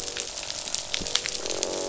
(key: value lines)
label: biophony, croak
recorder: SoundTrap 500